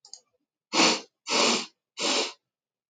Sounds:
Sniff